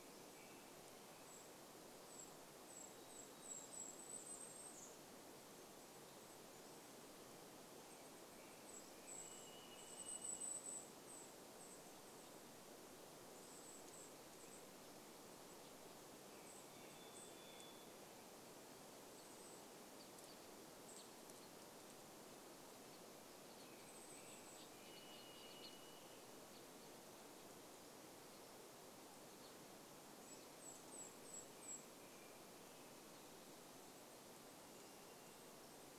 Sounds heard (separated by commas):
Golden-crowned Kinglet song, American Robin call, Golden-crowned Kinglet call, American Robin song, Varied Thrush song, Western Tanager song